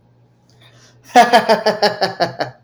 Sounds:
Laughter